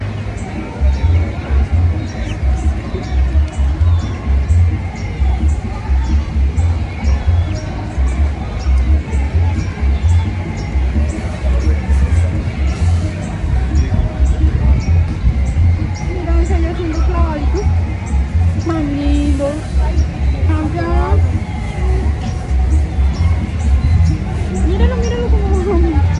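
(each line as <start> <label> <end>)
0.0 A bird chirps rhythmically and continuously in the background. 26.2
0.7 Music is playing in the distance. 26.2
15.9 A woman is speaking softly. 17.7
18.6 A woman is speaking softly. 21.3
24.6 A woman is talking. 26.2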